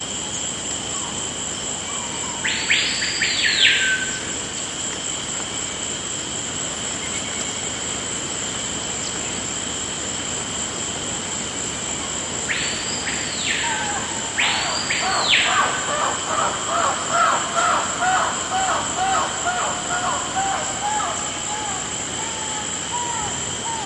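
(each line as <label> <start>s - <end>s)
Cicadas and insects chirping continuously with overlapping rhythmic patterns. 0.0s - 23.9s
A bird chirps with whistle-like tones in a rhythmic pattern with overlapping sounds. 2.2s - 4.2s
A bird chirps with whistle-like tones in a rhythmic pattern with overlapping sounds. 12.4s - 15.8s
A monkey makes repetitive, rhythmic hooting calls with consistent volume that gradually fade away. 14.8s - 23.9s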